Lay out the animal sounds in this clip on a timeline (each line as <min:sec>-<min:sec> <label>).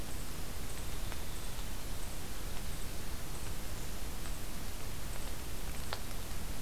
0:00.0-0:03.3 Winter Wren (Troglodytes hiemalis)